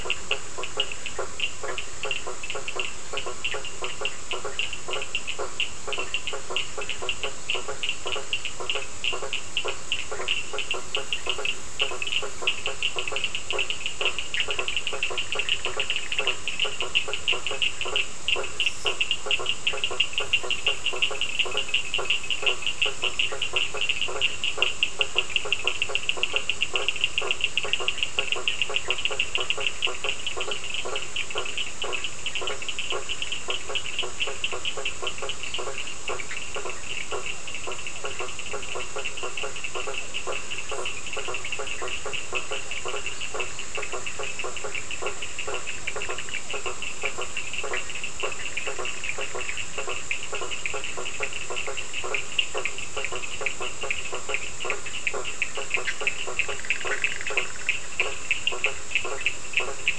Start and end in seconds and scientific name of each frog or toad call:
0.0	59.9	Boana faber
0.0	59.9	Sphaenorhynchus surdus
14.2	16.5	Boana bischoffi
36.2	36.5	Boana bischoffi
45.6	46.7	Boana bischoffi
55.9	57.6	Boana bischoffi